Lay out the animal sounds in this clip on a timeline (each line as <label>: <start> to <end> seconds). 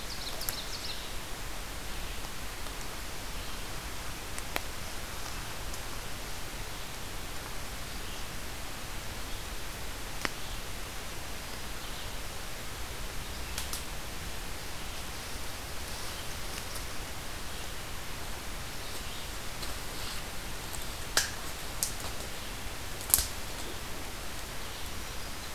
Ovenbird (Seiurus aurocapilla): 0.0 to 1.3 seconds
Red-eyed Vireo (Vireo olivaceus): 0.0 to 5.8 seconds
Red-eyed Vireo (Vireo olivaceus): 14.9 to 20.5 seconds